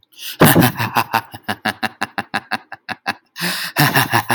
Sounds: Laughter